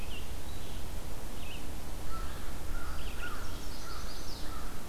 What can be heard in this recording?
Red-eyed Vireo, American Crow, Chestnut-sided Warbler